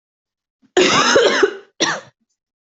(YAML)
expert_labels:
- quality: good
  cough_type: dry
  dyspnea: false
  wheezing: false
  stridor: false
  choking: false
  congestion: false
  nothing: true
  diagnosis: COVID-19
  severity: mild
age: 27
gender: female
respiratory_condition: false
fever_muscle_pain: false
status: COVID-19